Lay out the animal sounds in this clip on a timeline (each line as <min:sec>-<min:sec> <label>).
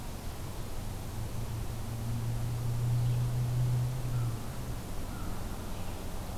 0:04.0-0:05.4 American Crow (Corvus brachyrhynchos)